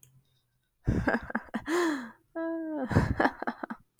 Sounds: Laughter